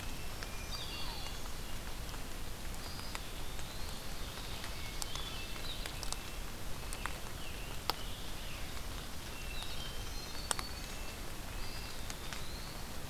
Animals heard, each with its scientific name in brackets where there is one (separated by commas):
Yellow-bellied Sapsucker (Sphyrapicus varius), Scarlet Tanager (Piranga olivacea), Red-breasted Nuthatch (Sitta canadensis), Black-throated Green Warbler (Setophaga virens), Hermit Thrush (Catharus guttatus), Eastern Wood-Pewee (Contopus virens)